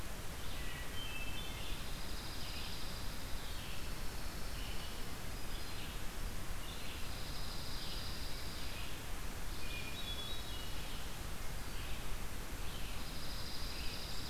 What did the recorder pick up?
Red-eyed Vireo, Hermit Thrush, Dark-eyed Junco